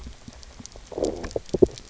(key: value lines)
label: biophony, low growl
recorder: SoundTrap 300